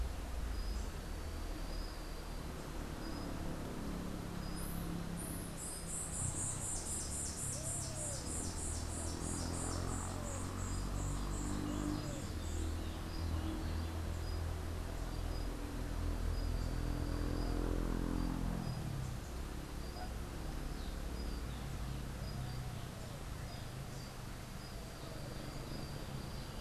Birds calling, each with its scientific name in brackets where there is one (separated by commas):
White-eared Ground-Sparrow (Melozone leucotis)